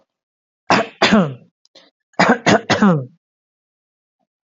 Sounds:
Throat clearing